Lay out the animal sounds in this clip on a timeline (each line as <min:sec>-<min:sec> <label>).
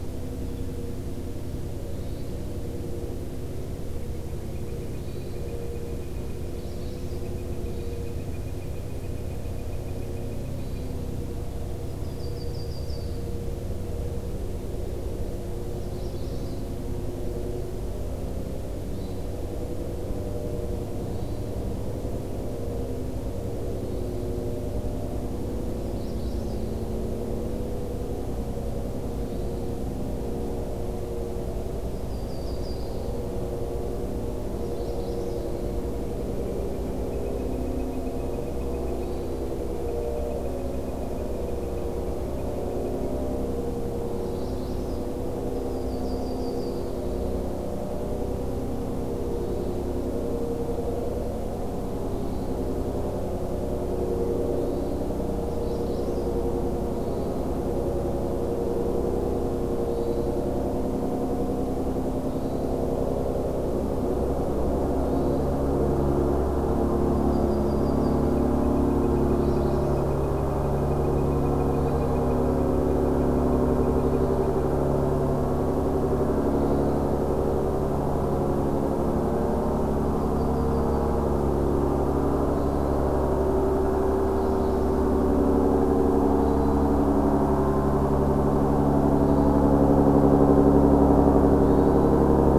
0:01.7-0:02.4 Hermit Thrush (Catharus guttatus)
0:03.8-0:11.0 Northern Flicker (Colaptes auratus)
0:04.9-0:05.5 Hermit Thrush (Catharus guttatus)
0:06.5-0:07.3 Magnolia Warbler (Setophaga magnolia)
0:07.6-0:08.1 Hermit Thrush (Catharus guttatus)
0:10.5-0:11.0 Hermit Thrush (Catharus guttatus)
0:11.7-0:13.2 Yellow-rumped Warbler (Setophaga coronata)
0:15.8-0:16.7 Magnolia Warbler (Setophaga magnolia)
0:18.8-0:19.3 Hermit Thrush (Catharus guttatus)
0:21.0-0:21.5 Hermit Thrush (Catharus guttatus)
0:23.7-0:24.2 Hermit Thrush (Catharus guttatus)
0:25.8-0:26.7 Magnolia Warbler (Setophaga magnolia)
0:26.4-0:26.9 Hermit Thrush (Catharus guttatus)
0:29.2-0:29.6 Hermit Thrush (Catharus guttatus)
0:31.8-0:33.0 Yellow-rumped Warbler (Setophaga coronata)
0:32.7-0:33.4 Hermit Thrush (Catharus guttatus)
0:34.6-0:35.4 Magnolia Warbler (Setophaga magnolia)
0:35.2-0:35.7 Hermit Thrush (Catharus guttatus)
0:36.0-0:43.0 Northern Flicker (Colaptes auratus)
0:38.8-0:39.5 Hermit Thrush (Catharus guttatus)
0:44.1-0:45.0 Magnolia Warbler (Setophaga magnolia)
0:45.4-0:46.8 Yellow-rumped Warbler (Setophaga coronata)
0:46.7-0:47.3 Hermit Thrush (Catharus guttatus)
0:49.2-0:49.8 Hermit Thrush (Catharus guttatus)
0:52.0-0:52.6 Hermit Thrush (Catharus guttatus)
0:54.5-0:55.0 Hermit Thrush (Catharus guttatus)
0:55.3-0:56.4 Magnolia Warbler (Setophaga magnolia)
0:56.9-0:57.4 Hermit Thrush (Catharus guttatus)
0:59.7-1:00.4 Hermit Thrush (Catharus guttatus)
1:02.2-1:02.9 Hermit Thrush (Catharus guttatus)
1:05.0-1:05.5 Hermit Thrush (Catharus guttatus)
1:06.9-1:08.3 Yellow-rumped Warbler (Setophaga coronata)
1:08.1-1:08.7 Hermit Thrush (Catharus guttatus)
1:08.2-1:14.6 Northern Flicker (Colaptes auratus)
1:09.3-1:10.1 Magnolia Warbler (Setophaga magnolia)
1:11.8-1:12.2 Hermit Thrush (Catharus guttatus)
1:13.8-1:14.5 Hermit Thrush (Catharus guttatus)
1:16.6-1:17.0 Hermit Thrush (Catharus guttatus)
1:19.9-1:21.3 Yellow-rumped Warbler (Setophaga coronata)
1:22.5-1:23.0 Hermit Thrush (Catharus guttatus)
1:24.2-1:25.2 Magnolia Warbler (Setophaga magnolia)
1:26.4-1:26.9 Hermit Thrush (Catharus guttatus)
1:29.1-1:29.7 Hermit Thrush (Catharus guttatus)
1:31.5-1:32.2 Hermit Thrush (Catharus guttatus)